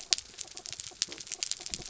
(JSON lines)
{"label": "anthrophony, mechanical", "recorder": "SoundTrap 300"}